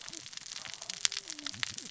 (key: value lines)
label: biophony, cascading saw
recorder: SoundTrap 600 or HydroMoth